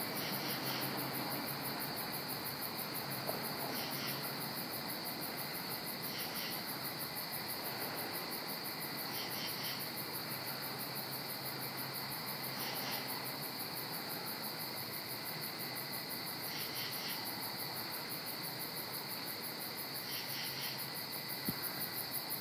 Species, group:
Pterophylla camellifolia, Orthoptera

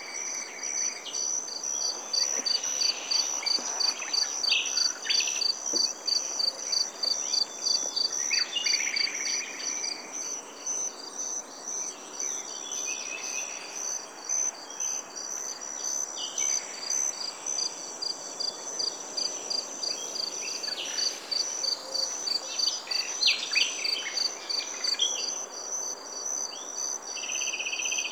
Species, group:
Gryllus bimaculatus, Orthoptera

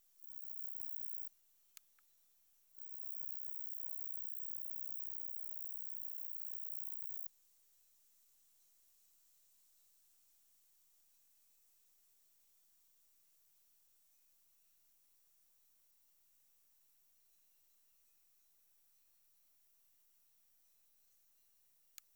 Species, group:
Roeseliana roeselii, Orthoptera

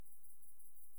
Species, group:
Leptophyes punctatissima, Orthoptera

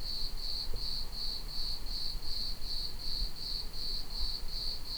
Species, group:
Eumodicogryllus bordigalensis, Orthoptera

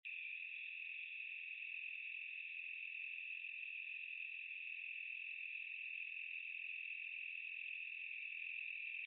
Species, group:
Oecanthus latipennis, Orthoptera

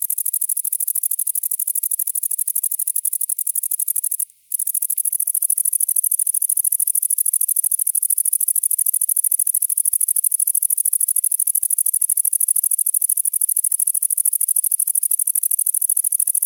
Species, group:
Tettigonia viridissima, Orthoptera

